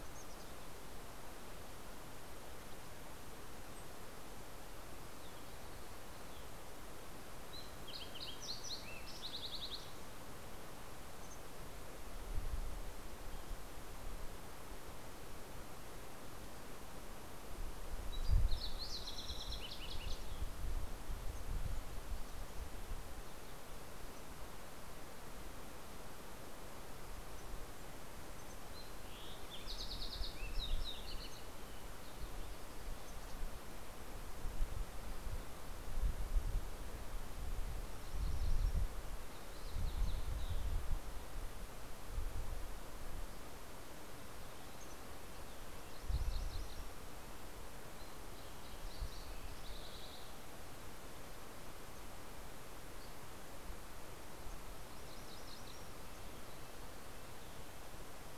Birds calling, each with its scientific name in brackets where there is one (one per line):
Red-breasted Nuthatch (Sitta canadensis)
MacGillivray's Warbler (Geothlypis tolmiei)
Fox Sparrow (Passerella iliaca)